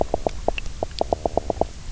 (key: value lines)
label: biophony
recorder: SoundTrap 300